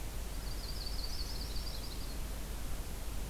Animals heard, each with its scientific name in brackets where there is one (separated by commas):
Yellow-rumped Warbler (Setophaga coronata)